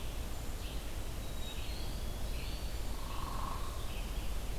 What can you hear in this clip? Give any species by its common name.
Red-eyed Vireo, Black-capped Chickadee, Eastern Wood-Pewee, Hairy Woodpecker